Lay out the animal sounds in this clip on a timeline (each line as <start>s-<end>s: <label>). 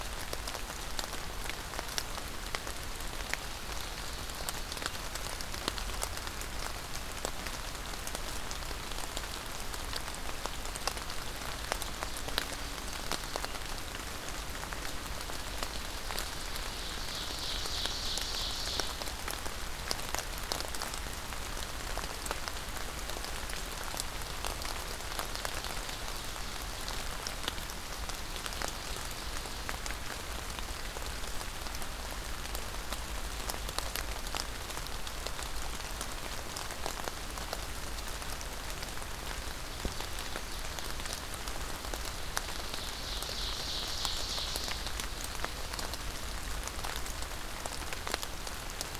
2.8s-5.2s: Ovenbird (Seiurus aurocapilla)
15.8s-19.1s: Ovenbird (Seiurus aurocapilla)
39.2s-41.9s: Ovenbird (Seiurus aurocapilla)
42.3s-46.1s: Ovenbird (Seiurus aurocapilla)